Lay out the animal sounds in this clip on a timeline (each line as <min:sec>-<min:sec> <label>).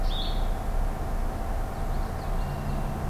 0:00.0-0:00.5 Blue-headed Vireo (Vireo solitarius)
0:01.6-0:02.9 Common Yellowthroat (Geothlypis trichas)
0:02.1-0:02.9 Red-winged Blackbird (Agelaius phoeniceus)